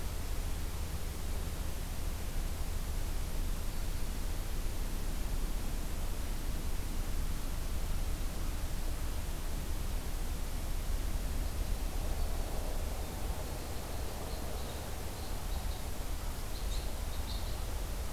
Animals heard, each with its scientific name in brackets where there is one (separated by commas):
Red Crossbill (Loxia curvirostra)